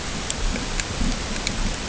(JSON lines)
{"label": "ambient", "recorder": "HydroMoth"}